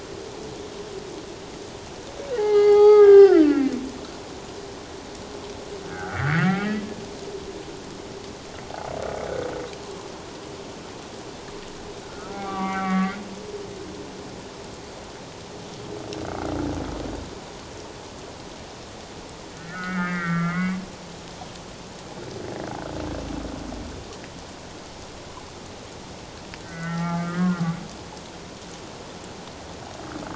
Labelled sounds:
2.3	3.8	humpback whale, 0.78 to 5.3 kHz
5.8	6.8	humpback whale, 1.2 to 2.4 kHz
12.1	13.1	humpback whale, 0.78 to 2.4 kHz
19.6	20.8	humpback whale, 1.0 to 2.4 kHz
26.6	27.6	humpback whale, 0.81 to 2.1 kHz

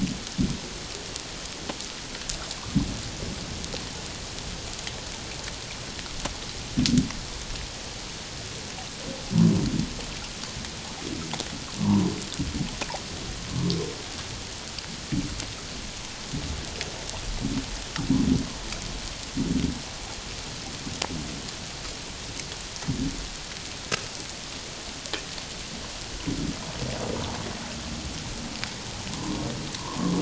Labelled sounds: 11.8	12.1	humpback whale, 0.84 to 1.2 kHz
29.1	30.1	humpback whale, 0.88 to 1.2 kHz

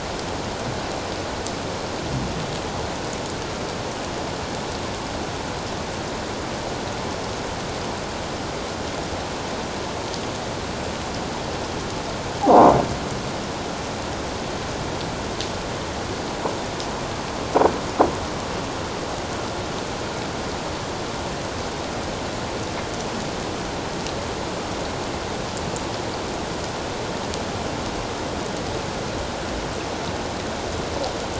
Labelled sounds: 12.4	12.7	croaking sound likely from a nearby submerged object, 0.78 to 1.1 kHz

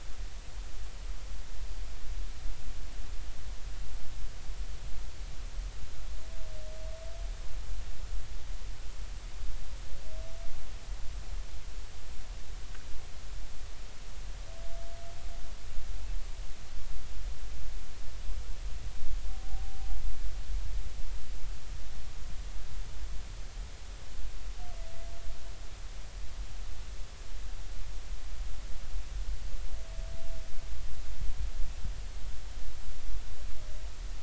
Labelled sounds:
19.3	19.9	humpback whale, 0.80 to 0.83 kHz

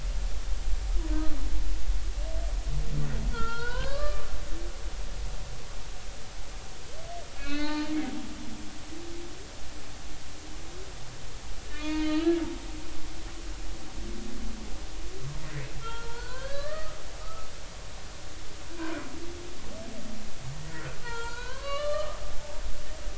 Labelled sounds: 3.3	4.3	humpback whale, 0.86 to 4.4 kHz
7.4	8.0	humpback whale, 0.83 to 4.5 kHz
11.7	12.4	humpback whale, 0.86 to 4.4 kHz
15.8	17.5	humpback whale, 0.96 to 4.6 kHz
20.7	23.1	humpback whale, 0.83 to 4.6 kHz

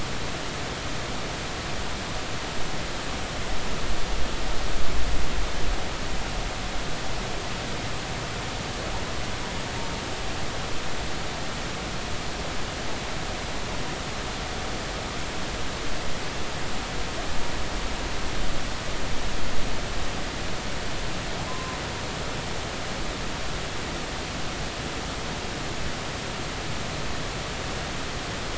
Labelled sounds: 21.5	21.8	humpback whale, 0.93 to 1.1 kHz

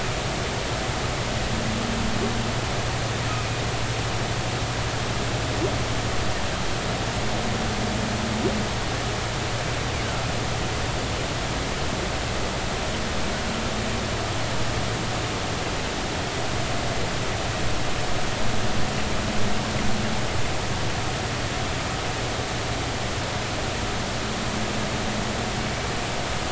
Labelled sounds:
3.3	3.6	humpback whale, 2.4 to 2.6 kHz

